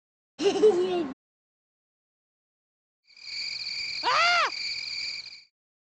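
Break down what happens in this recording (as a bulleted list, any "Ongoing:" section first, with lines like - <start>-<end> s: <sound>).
Ongoing:
- 3.0-5.5 s: you can hear a cricket, which fades in and fades out
Other sounds:
- 0.4-1.1 s: laughter can be heard
- 4.0-4.5 s: someone screams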